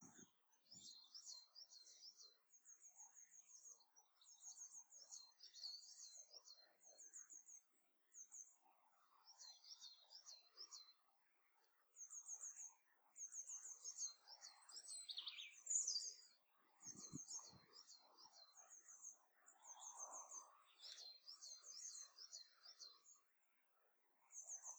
Is there more than one bird in the room?
yes